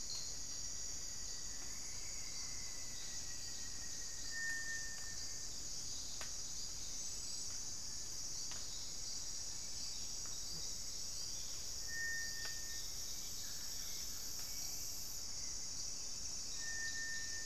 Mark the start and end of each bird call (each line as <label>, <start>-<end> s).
Rufous-fronted Antthrush (Formicarius rufifrons), 0.0-5.8 s